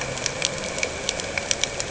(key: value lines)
label: anthrophony, boat engine
recorder: HydroMoth